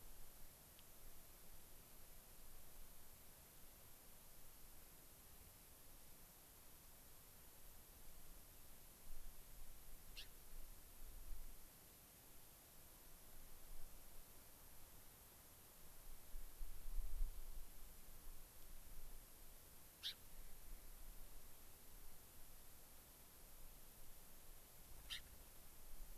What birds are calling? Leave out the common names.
Leucosticte tephrocotis